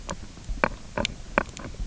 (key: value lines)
label: biophony, knock croak
recorder: SoundTrap 300